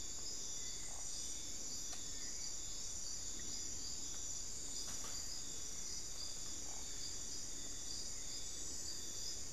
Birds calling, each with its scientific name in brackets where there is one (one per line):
unidentified bird